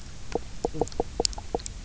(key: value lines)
label: biophony, knock croak
recorder: SoundTrap 300